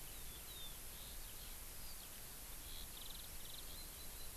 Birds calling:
Eurasian Skylark (Alauda arvensis)

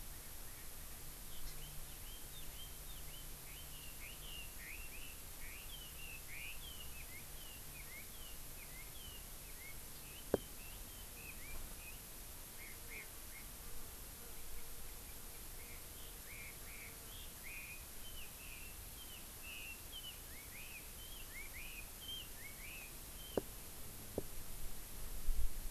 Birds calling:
Chinese Hwamei (Garrulax canorus)
Erckel's Francolin (Pternistis erckelii)

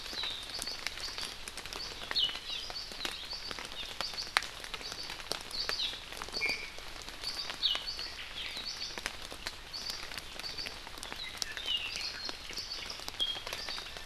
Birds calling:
Iiwi (Drepanis coccinea)
Hawaii Amakihi (Chlorodrepanis virens)

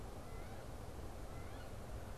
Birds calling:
Wood Duck (Aix sponsa)

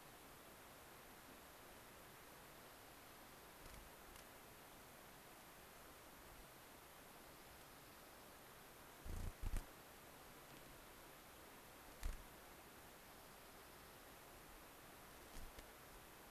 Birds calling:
unidentified bird
Dark-eyed Junco (Junco hyemalis)

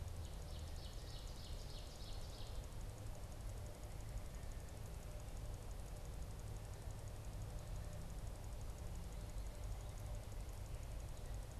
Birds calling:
Ovenbird (Seiurus aurocapilla)

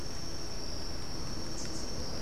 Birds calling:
Rufous-capped Warbler (Basileuterus rufifrons)

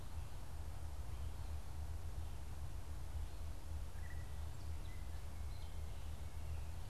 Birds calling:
Gray Catbird (Dumetella carolinensis)

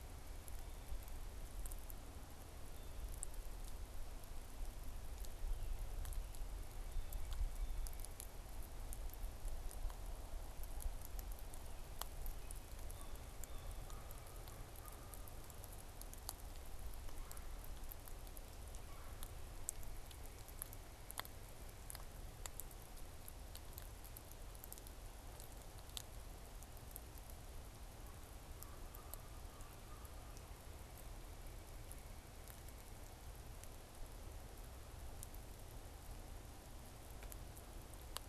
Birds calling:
Red-bellied Woodpecker (Melanerpes carolinus)
American Crow (Corvus brachyrhynchos)

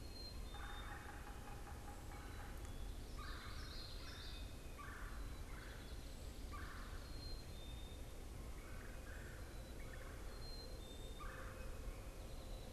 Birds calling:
Common Yellowthroat (Geothlypis trichas)
Yellow-bellied Sapsucker (Sphyrapicus varius)
Black-capped Chickadee (Poecile atricapillus)
Red-bellied Woodpecker (Melanerpes carolinus)
Northern Waterthrush (Parkesia noveboracensis)

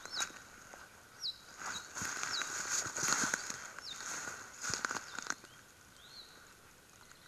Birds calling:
Apapane (Himatione sanguinea)

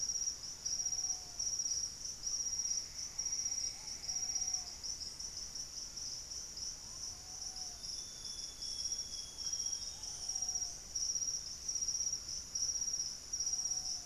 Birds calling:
Ruddy Pigeon (Patagioenas subvinacea)
Screaming Piha (Lipaugus vociferans)
Purple-throated Fruitcrow (Querula purpurata)
Amazonian Grosbeak (Cyanoloxia rothschildii)
Plumbeous Antbird (Myrmelastes hyperythrus)
Thrush-like Wren (Campylorhynchus turdinus)

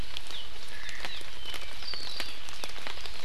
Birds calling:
Omao (Myadestes obscurus)

